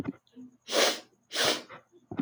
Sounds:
Sniff